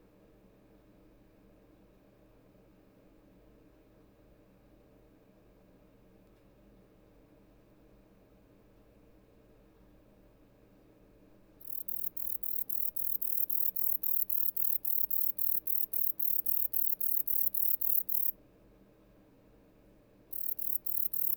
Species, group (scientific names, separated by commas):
Bicolorana bicolor, Orthoptera